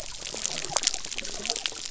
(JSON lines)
{"label": "biophony", "recorder": "SoundTrap 300"}